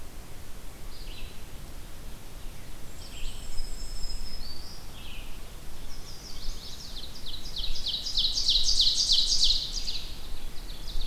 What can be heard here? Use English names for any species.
Red-eyed Vireo, Black-and-white Warbler, Black-throated Green Warbler, Chestnut-sided Warbler, Ovenbird